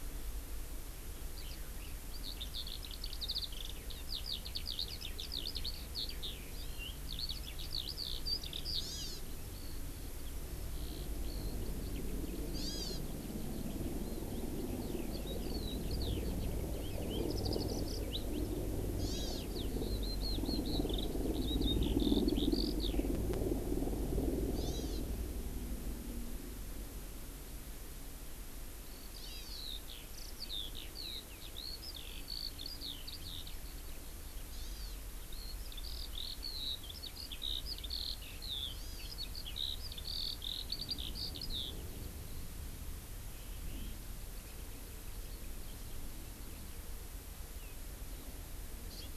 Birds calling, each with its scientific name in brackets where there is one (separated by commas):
Warbling White-eye (Zosterops japonicus), Hawaii Amakihi (Chlorodrepanis virens), Eurasian Skylark (Alauda arvensis)